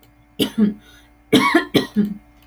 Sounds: Sneeze